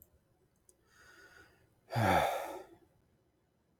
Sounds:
Sigh